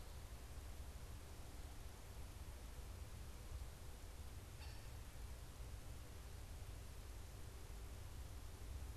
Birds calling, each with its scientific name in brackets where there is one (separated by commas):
Cooper's Hawk (Accipiter cooperii)